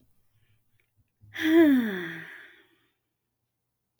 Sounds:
Sigh